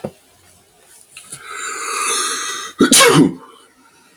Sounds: Sneeze